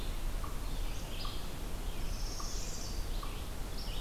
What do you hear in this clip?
Red-eyed Vireo, unknown mammal, Northern Parula